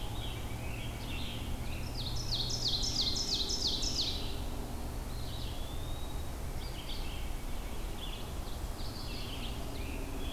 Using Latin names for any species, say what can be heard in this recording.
Piranga olivacea, Vireo olivaceus, Seiurus aurocapilla, Contopus virens